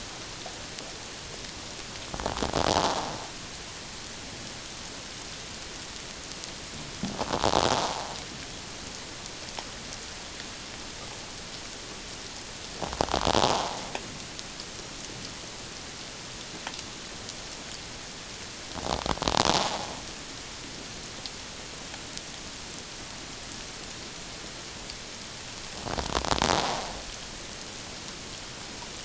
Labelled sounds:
2.7	3.0	invertebrate grinding on or near the hydrophone, 0.78 to 1.1 kHz
7.8	8.1	invertebrate grinding on or near the hydrophone, 0.78 to 1.1 kHz
13.4	13.8	invertebrate grinding on or near the hydrophone, 0.78 to 1.1 kHz

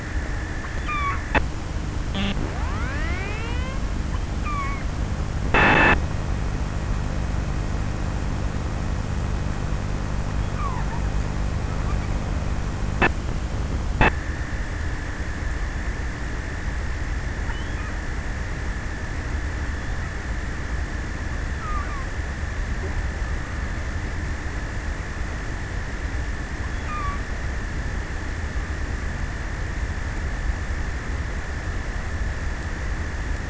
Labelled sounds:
20.8	22.2	killer whale, offshore, 0.32 to 5.9 kHz
26.4	27.6	killer whale, offshore, 0.63 to 5.1 kHz

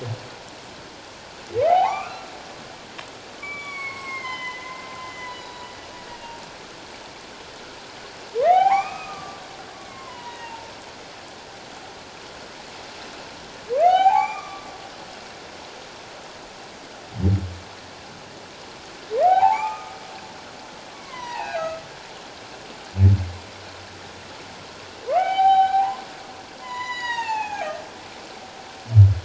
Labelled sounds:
1.6	2.2	humpback whale, 0.78 to 3.2 kHz
3.4	5.7	humpback whale, 0.94 to 7.7 kHz
6.1	6.3	humpback whale, 2.8 to 2.9 kHz
8.4	9.4	humpback whale, 0.78 to 2.6 kHz
9.8	10.7	humpback whale, 0.84 to 3.0 kHz
13.8	14.7	humpback whale, 0.78 to 4.0 kHz
19.2	20.0	humpback whale, 0.78 to 2.7 kHz
20.9	21.7	humpback whale, 0.78 to 4.1 kHz
25.1	26.0	humpback whale, 0.78 to 4.0 kHz
26.6	27.7	humpback whale, 0.78 to 7.1 kHz

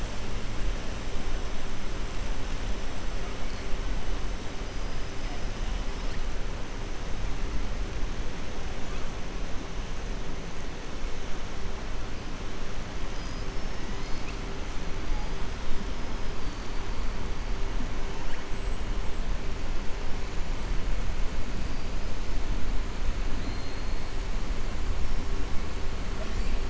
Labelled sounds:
23.3	23.9	killer whale, 3.5 to 4.3 kHz

